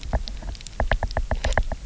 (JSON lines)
{"label": "biophony, knock", "recorder": "SoundTrap 300"}